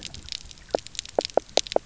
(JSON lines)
{"label": "biophony, knock croak", "recorder": "SoundTrap 300"}